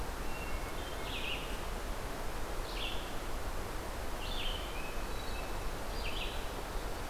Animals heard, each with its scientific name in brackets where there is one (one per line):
Red-eyed Vireo (Vireo olivaceus)
Hermit Thrush (Catharus guttatus)